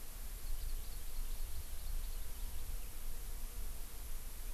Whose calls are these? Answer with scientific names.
Chlorodrepanis virens